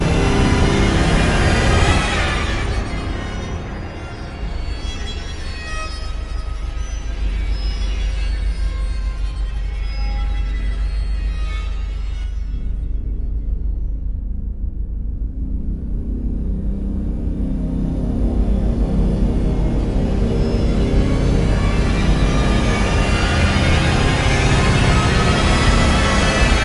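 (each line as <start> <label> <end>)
0.0 A shrill, eerie orchestral descending sweep. 3.5
3.5 Fluctuating, pulsating, sustained, erratic, and echoing sound of an orchestral instrument. 12.4
12.6 An orchestral sound gradually rises in pitch and volume. 26.6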